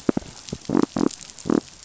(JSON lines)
{"label": "biophony", "recorder": "SoundTrap 500"}